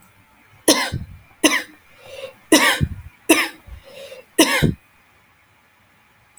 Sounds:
Cough